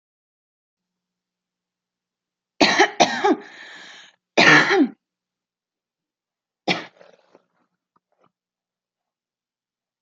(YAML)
expert_labels:
- quality: good
  cough_type: dry
  dyspnea: false
  wheezing: false
  stridor: false
  choking: false
  congestion: false
  nothing: true
  diagnosis: upper respiratory tract infection
  severity: mild
age: 26
gender: female
respiratory_condition: false
fever_muscle_pain: false
status: healthy